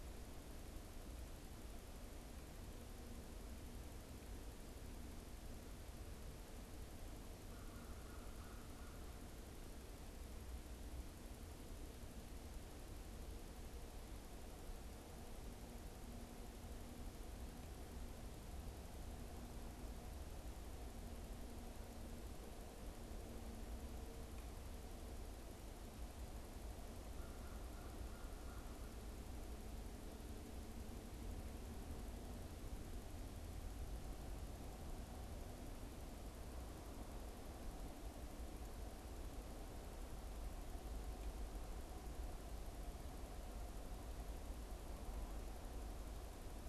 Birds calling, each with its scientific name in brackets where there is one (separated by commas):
American Crow (Corvus brachyrhynchos)